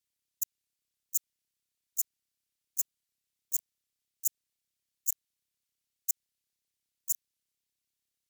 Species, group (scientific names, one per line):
Eupholidoptera schmidti
Orthoptera